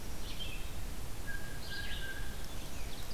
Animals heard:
Red-eyed Vireo (Vireo olivaceus), Blue Jay (Cyanocitta cristata)

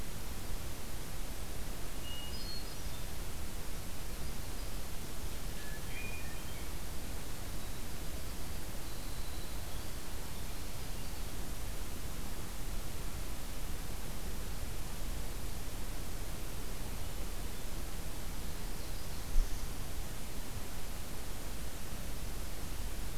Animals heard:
Winter Wren (Troglodytes hiemalis), Hermit Thrush (Catharus guttatus)

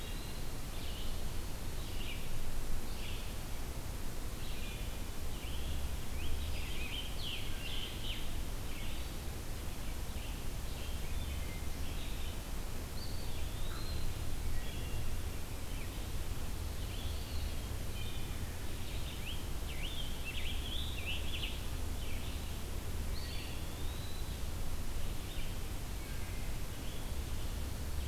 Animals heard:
Wood Thrush (Hylocichla mustelina), Common Raven (Corvus corax), Scarlet Tanager (Piranga olivacea), Red-eyed Vireo (Vireo olivaceus), Eastern Wood-Pewee (Contopus virens)

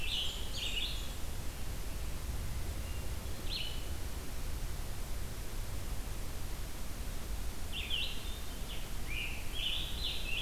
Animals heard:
Blackburnian Warbler (Setophaga fusca), Scarlet Tanager (Piranga olivacea), Red-eyed Vireo (Vireo olivaceus)

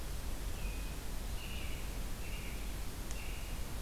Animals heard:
American Robin (Turdus migratorius)

